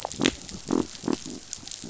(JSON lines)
{"label": "biophony", "recorder": "SoundTrap 500"}